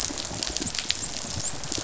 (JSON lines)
{"label": "biophony, dolphin", "recorder": "SoundTrap 500"}